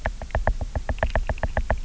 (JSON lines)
{"label": "biophony, knock", "recorder": "SoundTrap 300"}